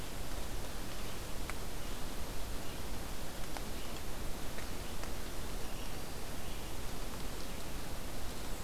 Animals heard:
forest ambience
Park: Hubbard Brook Experimental Forest